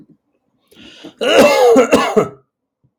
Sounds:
Cough